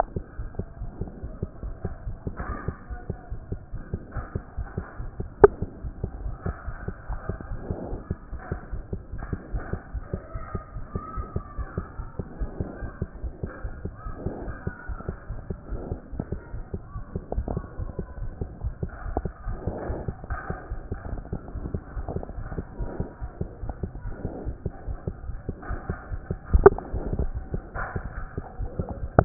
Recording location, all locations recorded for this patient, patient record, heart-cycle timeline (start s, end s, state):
aortic valve (AV)
aortic valve (AV)+pulmonary valve (PV)+tricuspid valve (TV)+mitral valve (MV)
#Age: Child
#Sex: Female
#Height: 103.0 cm
#Weight: 20.2 kg
#Pregnancy status: False
#Murmur: Absent
#Murmur locations: nan
#Most audible location: nan
#Systolic murmur timing: nan
#Systolic murmur shape: nan
#Systolic murmur grading: nan
#Systolic murmur pitch: nan
#Systolic murmur quality: nan
#Diastolic murmur timing: nan
#Diastolic murmur shape: nan
#Diastolic murmur grading: nan
#Diastolic murmur pitch: nan
#Diastolic murmur quality: nan
#Outcome: Normal
#Campaign: 2014 screening campaign
0.00	0.27	unannotated
0.27	0.38	diastole
0.38	0.48	S1
0.48	0.58	systole
0.58	0.66	S2
0.66	0.80	diastole
0.80	0.90	S1
0.90	1.00	systole
1.00	1.10	S2
1.10	1.24	diastole
1.24	1.32	S1
1.32	1.42	systole
1.42	1.48	S2
1.48	1.64	diastole
1.64	1.74	S1
1.74	1.84	systole
1.84	1.94	S2
1.94	2.06	diastole
2.06	2.16	S1
2.16	2.26	systole
2.26	2.34	S2
2.34	2.47	diastole
2.47	2.58	S1
2.58	2.66	systole
2.66	2.76	S2
2.76	2.90	diastole
2.90	3.00	S1
3.00	3.08	systole
3.08	3.18	S2
3.18	3.32	diastole
3.32	3.40	S1
3.40	3.50	systole
3.50	3.60	S2
3.60	3.74	diastole
3.74	3.82	S1
3.82	3.92	systole
3.92	4.00	S2
4.00	4.16	diastole
4.16	4.26	S1
4.26	4.34	systole
4.34	4.42	S2
4.42	4.58	diastole
4.58	4.68	S1
4.68	4.76	systole
4.76	4.86	S2
4.86	5.00	diastole
5.00	5.10	S1
5.10	5.20	systole
5.20	5.28	S2
5.28	5.42	diastole
5.42	29.25	unannotated